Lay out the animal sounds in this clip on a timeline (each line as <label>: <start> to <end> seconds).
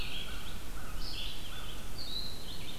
American Crow (Corvus brachyrhynchos): 0.0 to 2.6 seconds
Red-eyed Vireo (Vireo olivaceus): 0.0 to 2.8 seconds